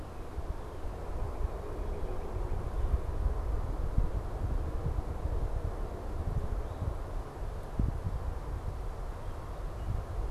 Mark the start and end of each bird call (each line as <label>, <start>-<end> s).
Northern Cardinal (Cardinalis cardinalis), 0.0-3.1 s